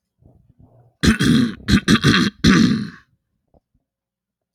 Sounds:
Throat clearing